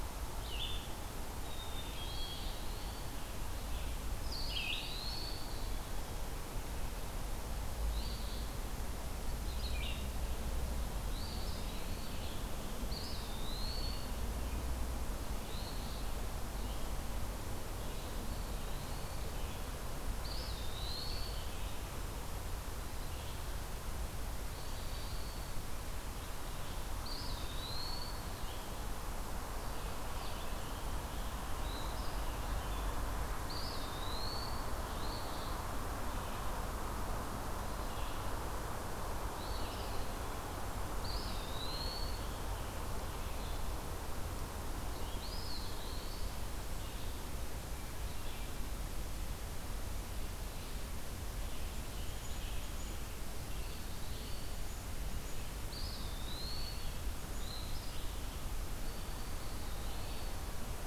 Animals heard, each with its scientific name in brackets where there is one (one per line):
Eastern Phoebe (Sayornis phoebe)
Black-throated Green Warbler (Setophaga virens)
Black-capped Chickadee (Poecile atricapillus)
Hermit Thrush (Catharus guttatus)
Red-eyed Vireo (Vireo olivaceus)
Scarlet Tanager (Piranga olivacea)
Eastern Wood-Pewee (Contopus virens)